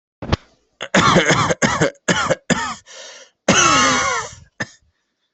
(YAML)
expert_labels:
- quality: good
  cough_type: dry
  dyspnea: false
  wheezing: false
  stridor: false
  choking: false
  congestion: false
  nothing: true
  diagnosis: lower respiratory tract infection
  severity: severe